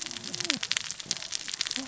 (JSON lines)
{"label": "biophony, cascading saw", "recorder": "SoundTrap 600 or HydroMoth"}